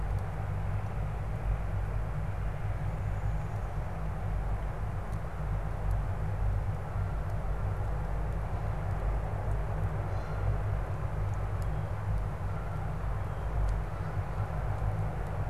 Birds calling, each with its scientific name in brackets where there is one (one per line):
Canada Goose (Branta canadensis)